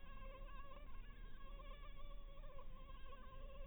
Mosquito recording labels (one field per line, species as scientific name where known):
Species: Anopheles maculatus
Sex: female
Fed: blood-fed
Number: one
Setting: cup